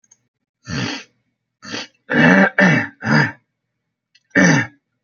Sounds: Throat clearing